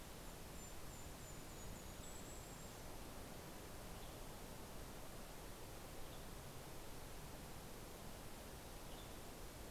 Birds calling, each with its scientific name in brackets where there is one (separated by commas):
Golden-crowned Kinglet (Regulus satrapa), Western Tanager (Piranga ludoviciana)